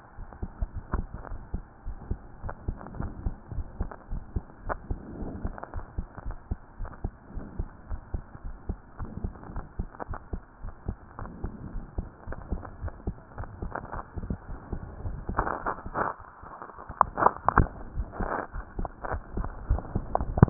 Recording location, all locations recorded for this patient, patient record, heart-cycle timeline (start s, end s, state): aortic valve (AV)
aortic valve (AV)+pulmonary valve (PV)+tricuspid valve (TV)+mitral valve (MV)
#Age: Child
#Sex: Female
#Height: 124.0 cm
#Weight: 21.3 kg
#Pregnancy status: False
#Murmur: Absent
#Murmur locations: nan
#Most audible location: nan
#Systolic murmur timing: nan
#Systolic murmur shape: nan
#Systolic murmur grading: nan
#Systolic murmur pitch: nan
#Systolic murmur quality: nan
#Diastolic murmur timing: nan
#Diastolic murmur shape: nan
#Diastolic murmur grading: nan
#Diastolic murmur pitch: nan
#Diastolic murmur quality: nan
#Outcome: Normal
#Campaign: 2015 screening campaign
0.00	1.28	unannotated
1.28	1.42	S1
1.42	1.52	systole
1.52	1.64	S2
1.64	1.83	diastole
1.83	1.98	S1
1.98	2.06	systole
2.06	2.20	S2
2.20	2.44	diastole
2.44	2.54	S1
2.54	2.66	systole
2.66	2.78	S2
2.78	2.98	diastole
2.98	3.14	S1
3.14	3.22	systole
3.22	3.34	S2
3.34	3.52	diastole
3.52	3.66	S1
3.66	3.76	systole
3.76	3.90	S2
3.90	4.10	diastole
4.10	4.22	S1
4.22	4.32	systole
4.32	4.44	S2
4.44	4.66	diastole
4.66	4.80	S1
4.80	4.88	systole
4.88	5.00	S2
5.00	5.20	diastole
5.20	5.32	S1
5.32	5.42	systole
5.42	5.54	S2
5.54	5.74	diastole
5.74	5.86	S1
5.86	5.94	systole
5.94	6.08	S2
6.08	6.26	diastole
6.26	6.38	S1
6.38	6.50	systole
6.50	6.60	S2
6.60	6.80	diastole
6.80	6.90	S1
6.90	7.00	systole
7.00	7.14	S2
7.14	7.34	diastole
7.34	7.46	S1
7.46	7.56	systole
7.56	7.68	S2
7.68	7.90	diastole
7.90	8.00	S1
8.00	8.10	systole
8.10	8.24	S2
8.24	8.44	diastole
8.44	8.56	S1
8.56	8.68	systole
8.68	8.78	S2
8.78	9.00	diastole
9.00	9.10	S1
9.10	9.22	systole
9.22	9.34	S2
9.34	9.54	diastole
9.54	9.66	S1
9.66	9.78	systole
9.78	9.90	S2
9.90	10.10	diastole
10.10	10.18	S1
10.18	10.32	systole
10.32	10.42	S2
10.42	10.64	diastole
10.64	10.72	S1
10.72	10.88	systole
10.88	10.98	S2
10.98	11.20	diastole
11.20	11.32	S1
11.32	11.42	systole
11.42	11.54	S2
11.54	11.72	diastole
11.72	11.84	S1
11.84	11.94	systole
11.94	12.08	S2
12.08	12.28	diastole
12.28	12.38	S1
12.38	12.48	systole
12.48	12.62	S2
12.62	12.82	diastole
12.82	12.94	S1
12.94	13.06	systole
13.06	13.16	S2
13.16	13.38	diastole
13.38	13.48	S1
13.48	13.60	systole
13.60	13.72	S2
13.72	13.94	diastole
13.94	14.04	S1
14.04	20.50	unannotated